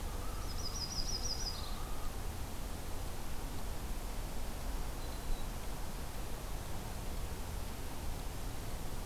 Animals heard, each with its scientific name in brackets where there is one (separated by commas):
Yellow-rumped Warbler (Setophaga coronata), Black-throated Green Warbler (Setophaga virens), Common Loon (Gavia immer)